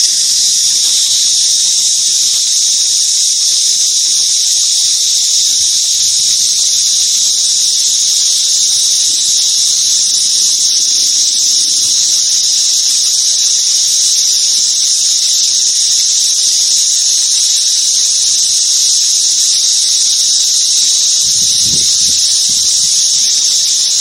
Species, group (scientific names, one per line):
Psaltoda plaga
Cicadidae